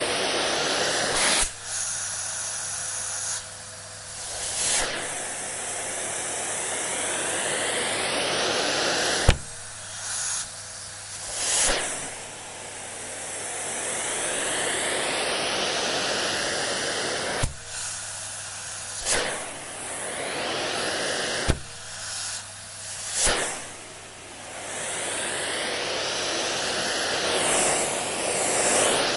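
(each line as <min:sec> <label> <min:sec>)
0:00.0 Continuous vacuum suction sound against the floor with varying volume and muffling. 0:29.2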